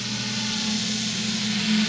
{"label": "anthrophony, boat engine", "recorder": "SoundTrap 500"}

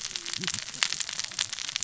{"label": "biophony, cascading saw", "recorder": "SoundTrap 600 or HydroMoth"}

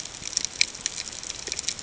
{"label": "ambient", "recorder": "HydroMoth"}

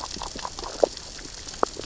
{"label": "biophony, grazing", "recorder": "SoundTrap 600 or HydroMoth"}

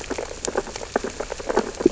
{"label": "biophony, sea urchins (Echinidae)", "recorder": "SoundTrap 600 or HydroMoth"}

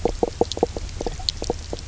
{"label": "biophony, knock croak", "recorder": "SoundTrap 300"}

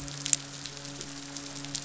{"label": "biophony, midshipman", "recorder": "SoundTrap 500"}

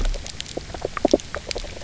{"label": "biophony, knock croak", "recorder": "SoundTrap 300"}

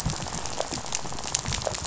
{"label": "biophony, rattle", "recorder": "SoundTrap 500"}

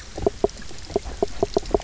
{"label": "biophony, knock croak", "recorder": "SoundTrap 300"}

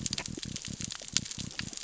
{"label": "biophony", "recorder": "SoundTrap 600 or HydroMoth"}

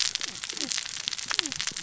{"label": "biophony, cascading saw", "recorder": "SoundTrap 600 or HydroMoth"}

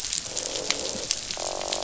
{"label": "biophony, croak", "recorder": "SoundTrap 500"}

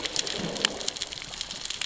{"label": "biophony, growl", "recorder": "SoundTrap 600 or HydroMoth"}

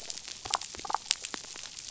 {"label": "biophony, damselfish", "recorder": "SoundTrap 500"}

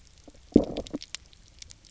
{"label": "biophony, low growl", "recorder": "SoundTrap 300"}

